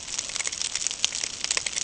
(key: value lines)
label: ambient
recorder: HydroMoth